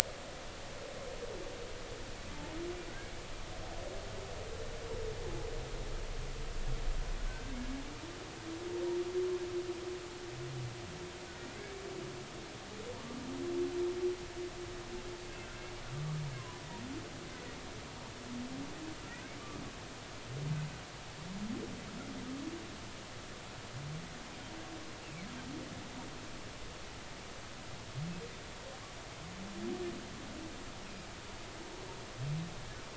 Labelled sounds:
7.2	7.6	humpback whale, 1.5 to 1.6 kHz
11.5	11.8	humpback whale, 2.0 to 2.4 kHz
15.4	15.7	humpback whale, 1.5 to 1.7 kHz
16.4	16.6	humpback whale, 0.93 to 1.1 kHz
25.0	25.3	humpback whale, 2.0 to 2.9 kHz

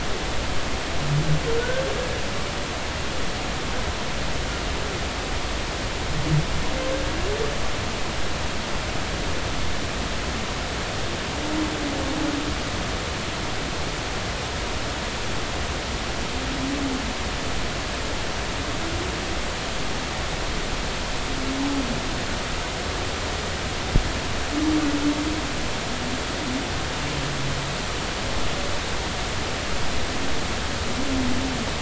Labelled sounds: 1.6	1.8	humpback whale, 1.4 to 1.6 kHz

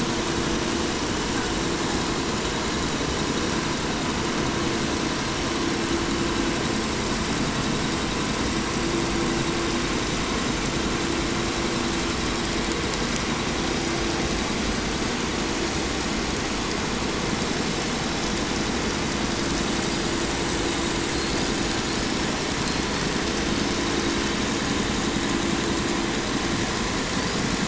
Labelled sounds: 20.5	22.3	killer whale, 3.4 to 8.0 kHz
22.6	23.0	killer whale, 3.8 to 8.0 kHz
23.5	23.8	killer whale, 3.4 to 5.7 kHz
27.1	27.6	killer whale, 4.2 to 6.0 kHz

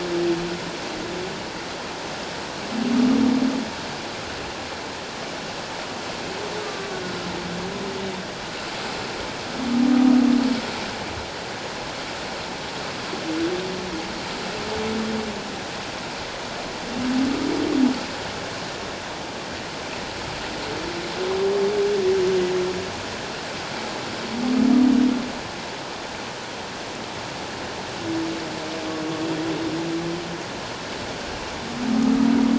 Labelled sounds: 6.6	6.9	humpback whale, 1.1 to 1.3 kHz

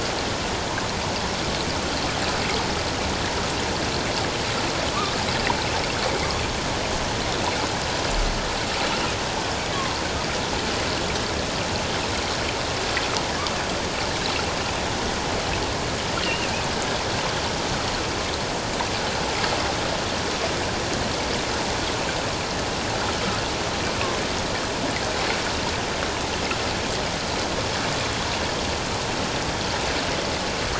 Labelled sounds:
16.2	16.5	killer whale, offshore, 2.5 to 3.0 kHz

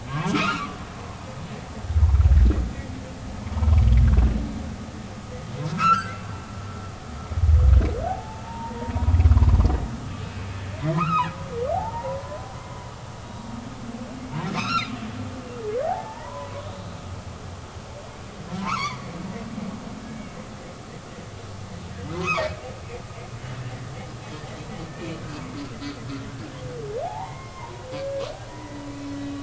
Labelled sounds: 0.1	0.8	humpback whale, 0.86 to 4.4 kHz
5.7	6.2	humpback whale, 0.96 to 3.0 kHz
8.1	8.9	humpback whale, 0.80 to 0.99 kHz
10.8	12.2	humpback whale, 0.80 to 4.2 kHz
13.2	13.5	humpback whale, 3.7 to 3.9 kHz
14.5	14.9	humpback whale, 1.0 to 4.4 kHz
15.8	16.7	humpback whale, 0.80 to 2.0 kHz
18.6	19.1	humpback whale, 0.86 to 6.0 kHz
22.1	22.4	humpback whale, 0.83 to 1.4 kHz
24.9	25.2	humpback whale, 2.2 to 2.5 kHz
27.0	28.2	humpback whale, 0.80 to 2.2 kHz
28.5	28.9	humpback whale, 1.8 to 2.1 kHz

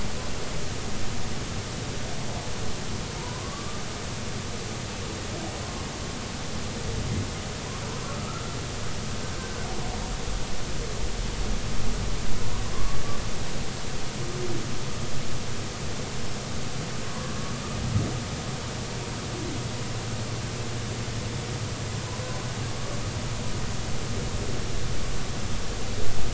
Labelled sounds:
3.2	3.8	humpback whale, 0.90 to 1.2 kHz
7.9	8.4	humpback whale, 0.96 to 1.4 kHz
12.7	13.0	humpback whale, 0.99 to 1.2 kHz
17.0	17.4	humpback whale, 0.93 to 1.2 kHz

